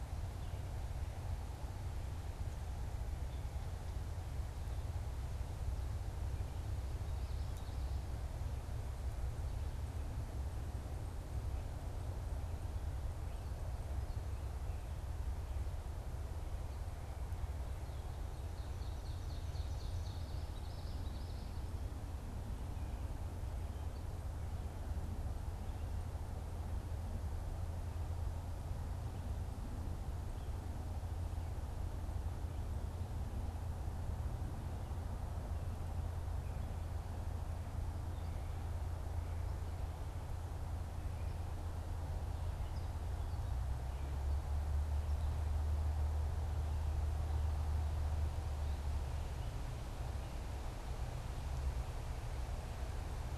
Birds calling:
Ovenbird (Seiurus aurocapilla), Common Yellowthroat (Geothlypis trichas)

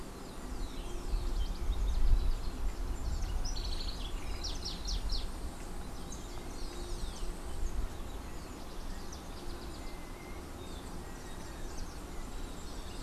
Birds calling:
House Wren (Troglodytes aedon)

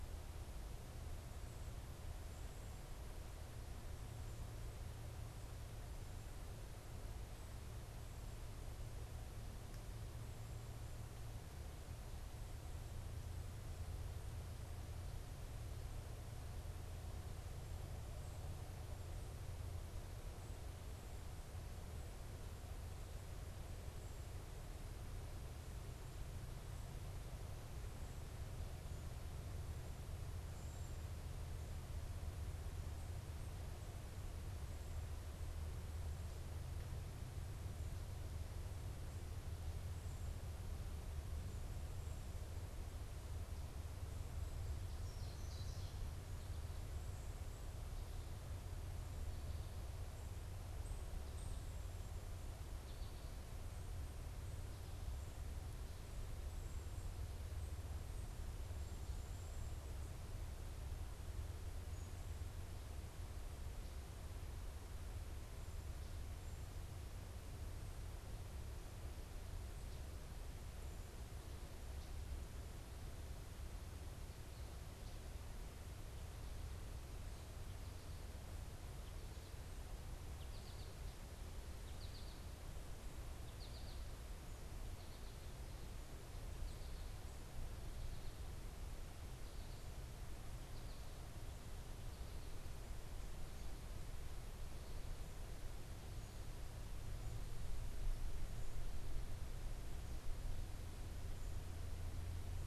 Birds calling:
American Goldfinch (Spinus tristis), Ovenbird (Seiurus aurocapilla)

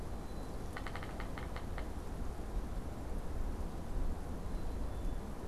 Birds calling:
Yellow-bellied Sapsucker (Sphyrapicus varius), Black-capped Chickadee (Poecile atricapillus)

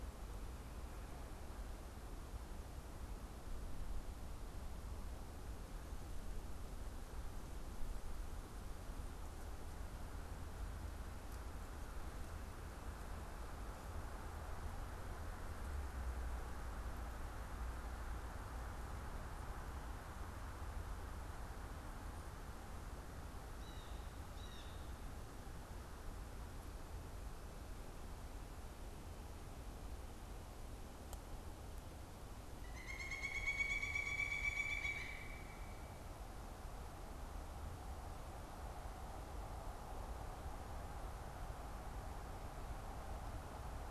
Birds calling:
Pileated Woodpecker (Dryocopus pileatus), Blue Jay (Cyanocitta cristata)

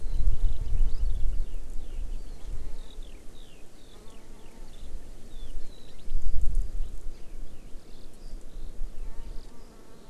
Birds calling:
Eurasian Skylark (Alauda arvensis)

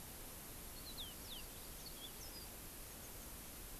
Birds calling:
Yellow-fronted Canary (Crithagra mozambica)

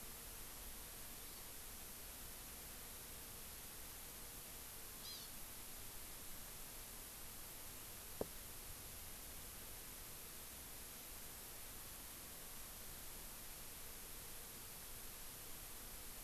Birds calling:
Hawaii Amakihi (Chlorodrepanis virens)

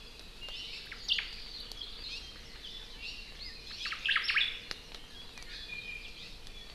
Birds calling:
Hawaii Amakihi (Chlorodrepanis virens), Omao (Myadestes obscurus), Iiwi (Drepanis coccinea)

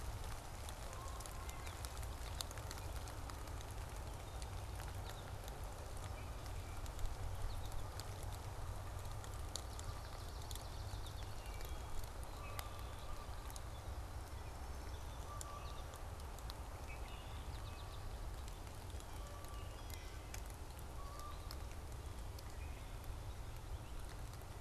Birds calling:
American Goldfinch (Spinus tristis), Swamp Sparrow (Melospiza georgiana), Red-winged Blackbird (Agelaius phoeniceus), Canada Goose (Branta canadensis)

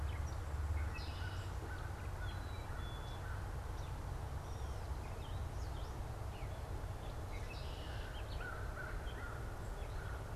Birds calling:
Gray Catbird (Dumetella carolinensis), American Crow (Corvus brachyrhynchos), Red-winged Blackbird (Agelaius phoeniceus)

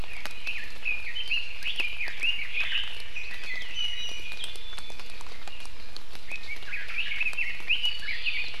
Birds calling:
Iiwi (Drepanis coccinea), Red-billed Leiothrix (Leiothrix lutea)

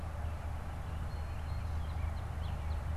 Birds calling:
Blue Jay (Cyanocitta cristata), Northern Cardinal (Cardinalis cardinalis)

